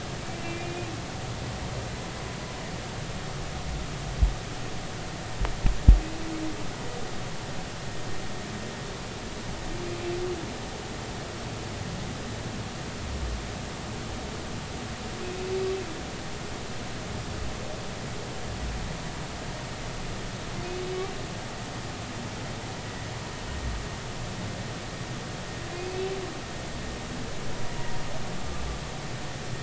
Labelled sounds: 0.4	0.9	humpback whale, 2.3 to 2.5 kHz
25.7	26.1	humpback whale, 2.4 to 2.7 kHz
27.8	28.0	humpback whale, 0.86 to 0.99 kHz

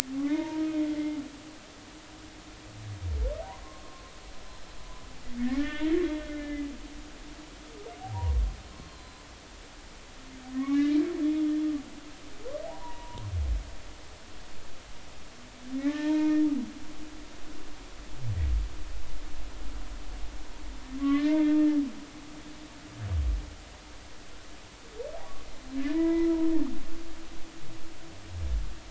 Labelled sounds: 0.2	0.6	humpback whale, 0.90 to 2.2 kHz
0.9	1.2	humpback whale, 2.0 to 2.2 kHz
3.8	4.1	humpback whale, 0.99 to 1.1 kHz
5.5	6.7	humpback whale, 1.2 to 3.5 kHz
8.0	8.3	humpback whale, 0.80 to 0.83 kHz
8.8	9.2	humpback whale, 3.9 to 4.4 kHz
10.5	11.5	humpback whale, 1.0 to 3.5 kHz
12.6	13.2	humpback whale, 0.80 to 1.0 kHz
15.8	16.4	humpback whale, 0.80 to 2.5 kHz
21.0	21.8	humpback whale, 0.99 to 3.3 kHz
25.9	26.3	humpback whale, 0.90 to 2.0 kHz

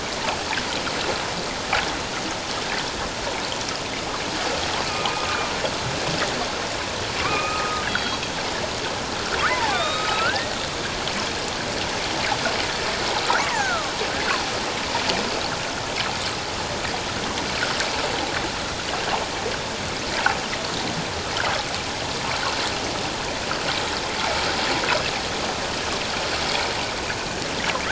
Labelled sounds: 5.1	5.5	killer whale, northern resident, A clan, AB subclan, 1.2 to 1.3 kHz
7.2	8.2	killer whale, northern resident, A clan, AB subclan, 1.1 to 4.0 kHz
9.5	10.6	killer whale, northern resident, A clan, AB subclan, 0.78 to 7.8 kHz
13.3	13.9	killer whale, northern resident, A clan, AB subclan, 0.78 to 2.0 kHz
24.2	24.4	killer whale, northern resident, A clan, AB subclan, 2.1 to 2.3 kHz

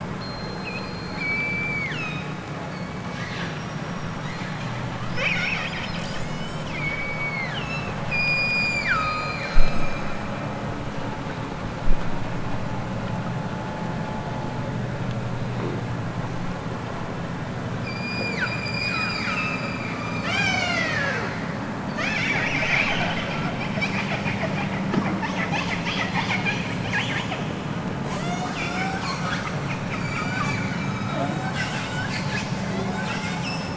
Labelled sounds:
1.1	2.3	killer whale, southern Alaska resident, 0.87 to 7.5 kHz
2.6	3.3	killer whale, southern Alaska resident, 1.8 to 7.0 kHz
5.9	7.9	killer whale, southern Alaska resident, 1.3 to 8.0 kHz
8.2	9.9	killer whale, southern Alaska resident, 0.78 to 8.0 kHz
17.8	21.4	killer whale, southern Alaska resident, 0.23 to 8.0 kHz
28.1	28.6	killer whale, southern Alaska resident, 0.32 to 8.0 kHz
29.9	31.7	killer whale, southern Alaska resident, 1.8 to 8.0 kHz
32.4	33.7	killer whale, southern Alaska resident, 1.3 to 8.0 kHz

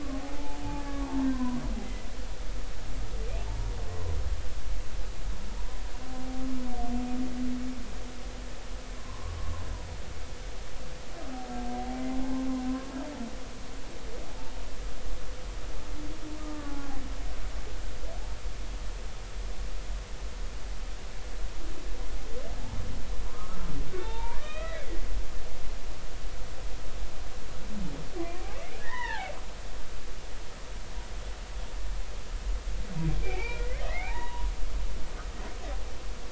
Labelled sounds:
0.1	2.1	humpback whale, 0.80 to 2.1 kHz
9.0	9.3	humpback whale, 0.93 to 1.2 kHz
16.4	17.0	humpback whale, 0.80 to 1.5 kHz
23.3	25.0	humpback whale, 0.83 to 3.7 kHz
28.5	29.3	humpback whale, 0.80 to 3.1 kHz
33.2	34.5	humpback whale, 0.80 to 3.9 kHz

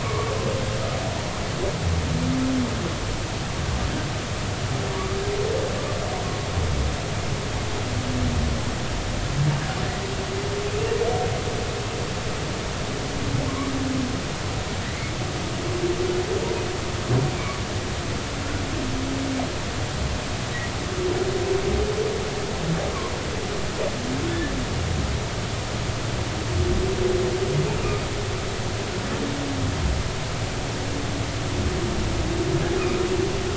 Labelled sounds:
0.0	0.3	humpback whale, 0.96 to 1.2 kHz
13.5	13.7	humpback whale, 0.99 to 1.2 kHz

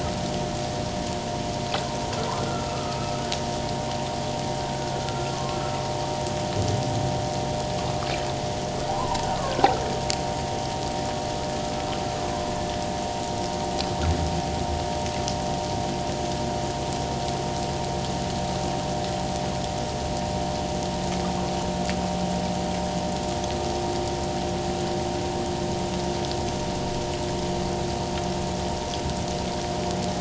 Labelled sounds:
2.4	3.2	humpback whale, 1.2 to 1.5 kHz
5.0	5.8	humpback whale, 1.2 to 1.4 kHz
8.9	9.2	humpback whale, 0.88 to 1.1 kHz
12.3	12.5	humpback whale, 0.97 to 1.1 kHz

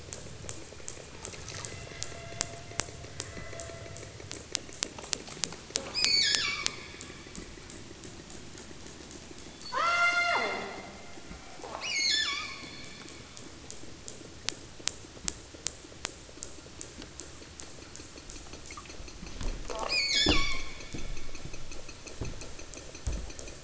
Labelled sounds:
0.5	2.6	killer whale, southern Alaska resident, 0.73 to 4.6 kHz
3.1	4.0	killer whale, southern Alaska resident, 0.73 to 4.7 kHz
6.0	6.9	killer whale, southern Alaska resident, 0.87 to 8.0 kHz
9.5	10.7	killer whale, southern Alaska resident, 0.41 to 8.0 kHz
11.8	12.8	killer whale, southern Alaska resident, 0.69 to 8.0 kHz
19.7	20.9	killer whale, southern Alaska resident, 0.83 to 8.0 kHz

